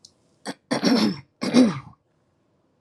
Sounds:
Throat clearing